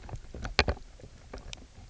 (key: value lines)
label: biophony, knock croak
recorder: SoundTrap 300